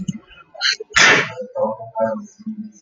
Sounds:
Sneeze